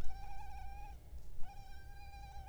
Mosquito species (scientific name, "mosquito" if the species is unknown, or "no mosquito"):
Culex pipiens complex